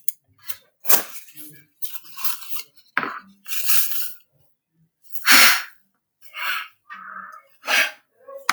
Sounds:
Sneeze